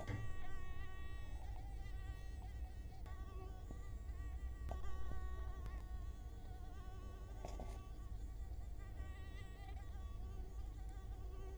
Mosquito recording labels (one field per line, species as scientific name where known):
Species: Culex quinquefasciatus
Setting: cup